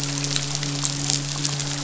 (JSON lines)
{"label": "biophony, midshipman", "recorder": "SoundTrap 500"}